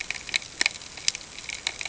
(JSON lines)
{"label": "ambient", "recorder": "HydroMoth"}